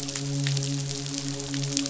{"label": "biophony, midshipman", "recorder": "SoundTrap 500"}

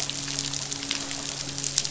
{"label": "biophony, midshipman", "recorder": "SoundTrap 500"}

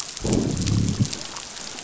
{"label": "biophony, growl", "recorder": "SoundTrap 500"}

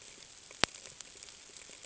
{"label": "ambient", "recorder": "HydroMoth"}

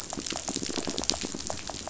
{"label": "biophony, rattle", "recorder": "SoundTrap 500"}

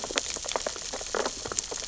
{"label": "biophony, sea urchins (Echinidae)", "recorder": "SoundTrap 600 or HydroMoth"}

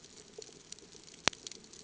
{"label": "ambient", "recorder": "HydroMoth"}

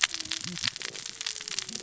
{"label": "biophony, cascading saw", "recorder": "SoundTrap 600 or HydroMoth"}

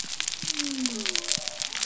{"label": "biophony", "recorder": "SoundTrap 300"}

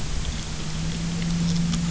{"label": "anthrophony, boat engine", "recorder": "SoundTrap 300"}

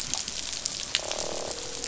{"label": "biophony, croak", "recorder": "SoundTrap 500"}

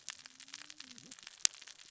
{"label": "biophony, cascading saw", "recorder": "SoundTrap 600 or HydroMoth"}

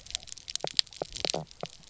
{"label": "biophony, knock croak", "recorder": "SoundTrap 300"}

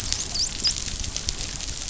{"label": "biophony, dolphin", "recorder": "SoundTrap 500"}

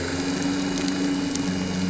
{"label": "anthrophony, boat engine", "recorder": "SoundTrap 300"}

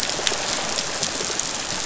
{"label": "biophony", "recorder": "SoundTrap 500"}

